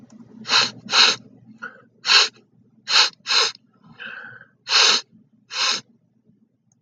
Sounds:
Sniff